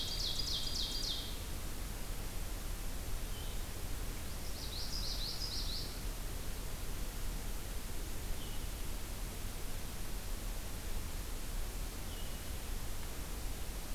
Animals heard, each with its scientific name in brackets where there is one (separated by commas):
Blue-headed Vireo (Vireo solitarius), Common Yellowthroat (Geothlypis trichas), Ovenbird (Seiurus aurocapilla)